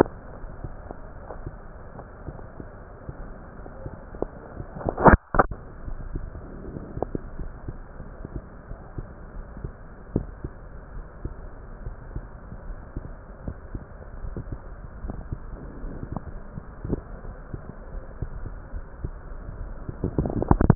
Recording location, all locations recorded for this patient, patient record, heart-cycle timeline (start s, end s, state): aortic valve (AV)
aortic valve (AV)+pulmonary valve (PV)+tricuspid valve (TV)
#Age: Child
#Sex: Female
#Height: 165.0 cm
#Weight: 67.0 kg
#Pregnancy status: False
#Murmur: Unknown
#Murmur locations: nan
#Most audible location: nan
#Systolic murmur timing: nan
#Systolic murmur shape: nan
#Systolic murmur grading: nan
#Systolic murmur pitch: nan
#Systolic murmur quality: nan
#Diastolic murmur timing: nan
#Diastolic murmur shape: nan
#Diastolic murmur grading: nan
#Diastolic murmur pitch: nan
#Diastolic murmur quality: nan
#Outcome: Abnormal
#Campaign: 2015 screening campaign
0.00	8.66	unannotated
8.66	8.80	S1
8.80	8.94	systole
8.94	9.06	S2
9.06	9.32	diastole
9.32	9.46	S1
9.46	9.62	systole
9.62	9.74	S2
9.74	10.09	diastole
10.09	10.30	S1
10.30	10.40	systole
10.40	10.54	S2
10.54	10.92	diastole
10.92	11.04	S1
11.04	11.22	systole
11.22	11.36	S2
11.36	11.82	diastole
11.82	11.96	S1
11.96	12.13	systole
12.13	12.26	S2
12.26	12.65	diastole
12.65	12.80	S1
12.80	12.92	systole
12.92	13.04	S2
13.04	20.75	unannotated